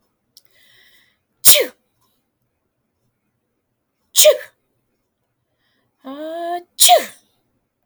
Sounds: Sneeze